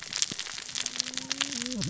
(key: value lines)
label: biophony, cascading saw
recorder: SoundTrap 600 or HydroMoth